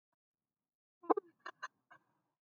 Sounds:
Sigh